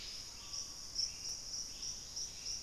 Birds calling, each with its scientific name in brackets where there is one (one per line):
Dusky-capped Greenlet (Pachysylvia hypoxantha)
Screaming Piha (Lipaugus vociferans)
Buff-breasted Wren (Cantorchilus leucotis)
Hauxwell's Thrush (Turdus hauxwelli)